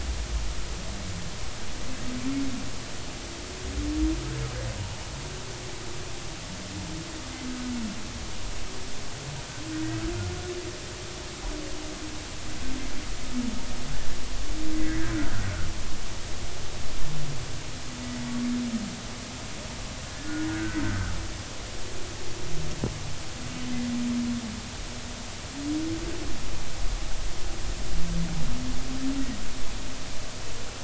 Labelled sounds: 9.7	10.0	humpback whale, 1.5 to 1.6 kHz
14.8	15.0	humpback whale, 1.8 to 2.1 kHz
20.5	21.1	humpback whale, 1.2 to 1.7 kHz

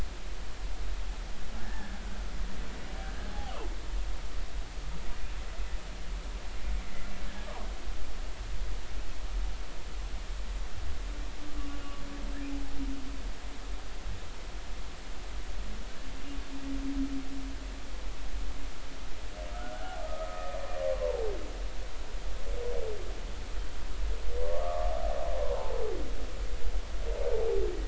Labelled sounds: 1.6	2.0	humpback whale, 1.6 to 1.9 kHz
3.0	3.6	humpback whale, 0.80 to 1.7 kHz
19.7	20.5	humpback whale, 0.80 to 1.7 kHz
20.9	21.2	humpback whale, 0.86 to 1.2 kHz
24.5	25.8	humpback whale, 0.83 to 1.3 kHz

